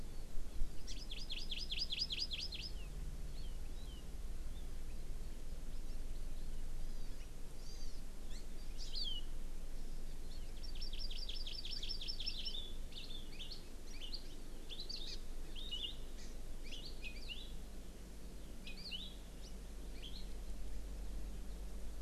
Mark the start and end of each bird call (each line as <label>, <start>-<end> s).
Hawaii Amakihi (Chlorodrepanis virens), 0.9-2.7 s
Hawaii Amakihi (Chlorodrepanis virens), 3.3-4.0 s
Hawaii Amakihi (Chlorodrepanis virens), 6.8-7.2 s
Hawaii Amakihi (Chlorodrepanis virens), 7.5-8.0 s
Hawaii Amakihi (Chlorodrepanis virens), 8.3-8.4 s
Hawaii Amakihi (Chlorodrepanis virens), 8.7-9.2 s
Hawaii Amakihi (Chlorodrepanis virens), 10.3-12.5 s
Palila (Loxioides bailleui), 12.9-13.6 s
Palila (Loxioides bailleui), 13.9-14.2 s
Palila (Loxioides bailleui), 14.7-15.1 s
Hawaii Amakihi (Chlorodrepanis virens), 15.0-15.2 s
Palila (Loxioides bailleui), 15.5-16.0 s
Hawaii Amakihi (Chlorodrepanis virens), 16.2-16.3 s
Hawaii Amakihi (Chlorodrepanis virens), 16.7-16.8 s
Palila (Loxioides bailleui), 16.8-17.6 s
Palila (Loxioides bailleui), 18.6-19.2 s
Palila (Loxioides bailleui), 19.9-20.3 s